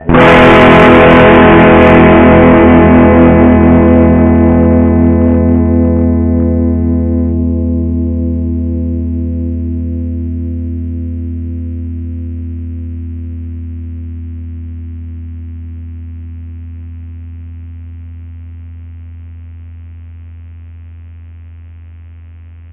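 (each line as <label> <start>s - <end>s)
An electric guitar strums a distorted E chord that slowly fades out. 0.0s - 22.7s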